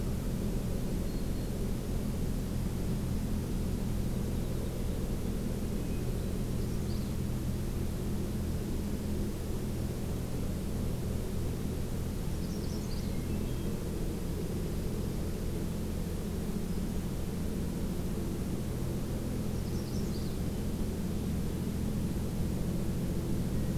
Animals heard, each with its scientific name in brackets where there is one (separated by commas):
Dark-eyed Junco (Junco hyemalis), Hermit Thrush (Catharus guttatus), Black-throated Green Warbler (Setophaga virens), Magnolia Warbler (Setophaga magnolia)